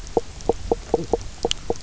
{"label": "biophony, knock croak", "recorder": "SoundTrap 300"}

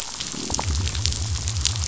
{"label": "biophony", "recorder": "SoundTrap 500"}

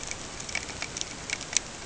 {"label": "ambient", "recorder": "HydroMoth"}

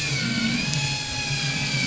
{"label": "anthrophony, boat engine", "recorder": "SoundTrap 500"}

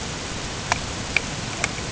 {"label": "ambient", "recorder": "HydroMoth"}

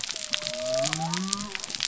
{"label": "biophony", "recorder": "SoundTrap 300"}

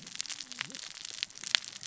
{"label": "biophony, cascading saw", "recorder": "SoundTrap 600 or HydroMoth"}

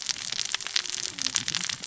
{"label": "biophony, cascading saw", "recorder": "SoundTrap 600 or HydroMoth"}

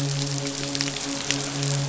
{"label": "biophony, midshipman", "recorder": "SoundTrap 500"}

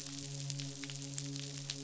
{"label": "biophony, midshipman", "recorder": "SoundTrap 500"}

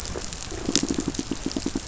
{"label": "biophony, pulse", "recorder": "SoundTrap 500"}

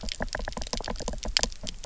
{"label": "biophony, knock", "recorder": "SoundTrap 300"}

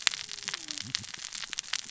{"label": "biophony, cascading saw", "recorder": "SoundTrap 600 or HydroMoth"}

